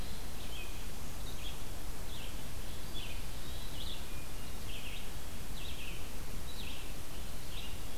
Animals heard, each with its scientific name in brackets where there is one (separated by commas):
Red-eyed Vireo (Vireo olivaceus), Hermit Thrush (Catharus guttatus)